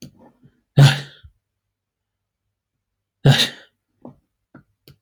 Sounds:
Sneeze